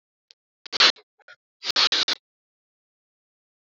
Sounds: Sniff